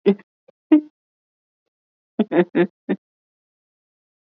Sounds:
Laughter